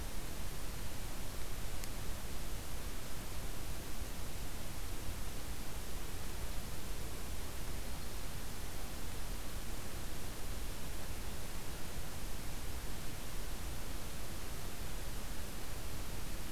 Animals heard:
forest ambience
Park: Acadia National Park